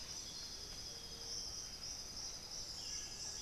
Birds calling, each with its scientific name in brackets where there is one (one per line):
Amazonian Motmot (Momotus momota)
Buff-throated Saltator (Saltator maximus)
Chestnut-winged Foliage-gleaner (Dendroma erythroptera)